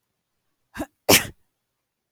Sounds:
Sneeze